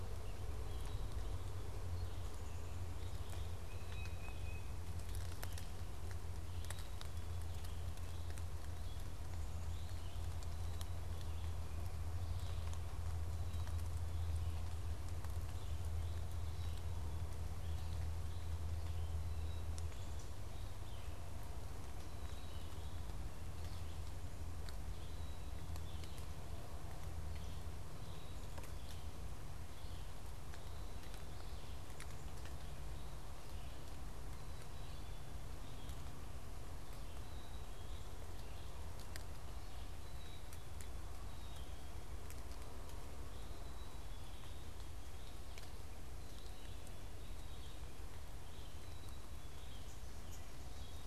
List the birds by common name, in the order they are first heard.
Red-eyed Vireo, Black-capped Chickadee, Tufted Titmouse